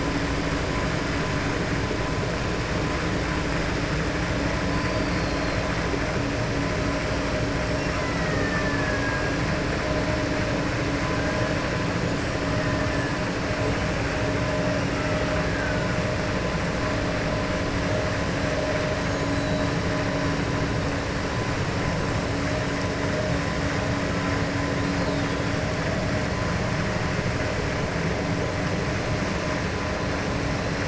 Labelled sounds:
7.8	9.3	killer whale, 0.90 to 2.8 kHz

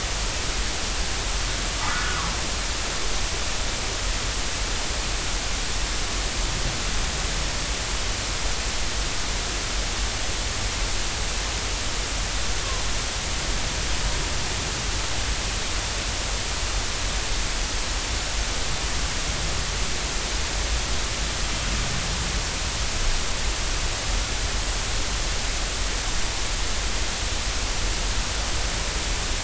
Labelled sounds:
1.8	2.2	humpback whale, 1.1 to 1.5 kHz

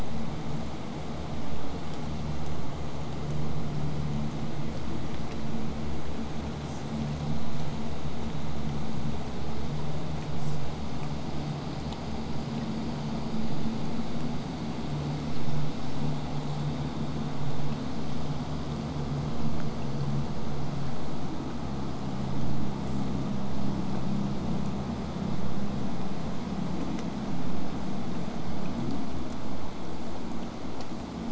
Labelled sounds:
6.6	6.8	killer whale, southern resident, J pod, call S05, 4.5 to 8.0 kHz
10.4	10.6	killer whale, southern resident, J pod, call S05, 4.3 to 8.0 kHz
22.8	23.0	killer whale, southern resident, J pod, call S05, 6.9 to 8.0 kHz

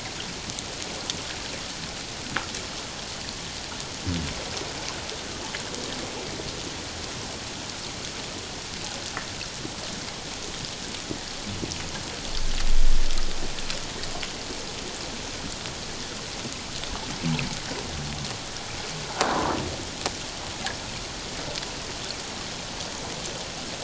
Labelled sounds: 19.2	19.5	croaking sound likely from a nearby submerged object, 0.81 to 1.2 kHz

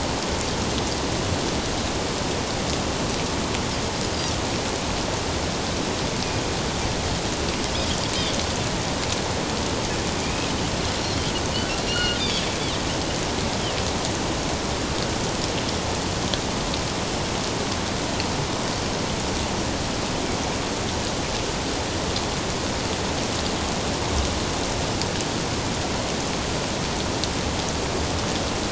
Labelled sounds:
10.2	10.5	Pacific white-sided dolphin, 2.3 to 2.7 kHz
11.9	12.5	Pacific white-sided dolphin, 1.3 to 4.4 kHz

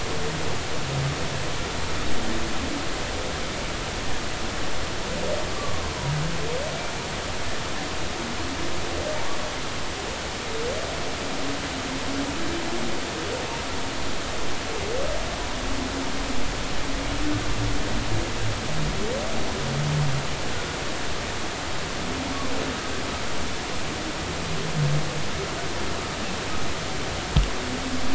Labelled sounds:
5.5	5.9	humpback whale, 0.99 to 1.2 kHz

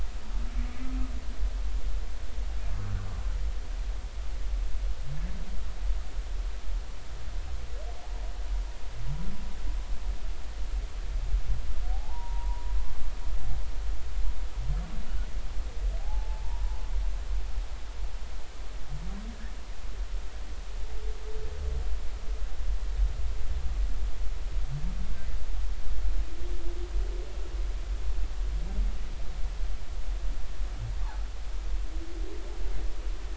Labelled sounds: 11.9	12.7	humpback whale, 0.80 to 1.1 kHz
16.0	16.8	humpback whale, 0.80 to 1.0 kHz

